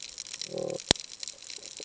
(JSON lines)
{"label": "ambient", "recorder": "HydroMoth"}